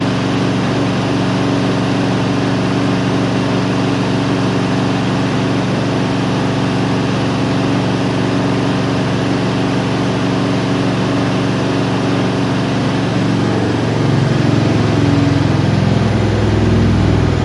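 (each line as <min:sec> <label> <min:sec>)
0:00.0 The washing machine is spinning at the final cycle. 0:14.6
0:14.6 A washing machine runs normally indoors. 0:17.4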